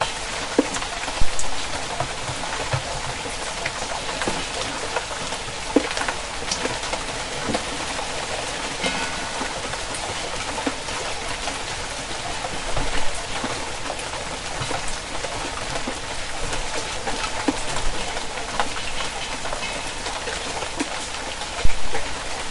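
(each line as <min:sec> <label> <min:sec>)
0:00.0 Rain falling in a quiet suburban area. 0:22.5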